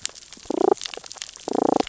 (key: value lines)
label: biophony, damselfish
recorder: SoundTrap 600 or HydroMoth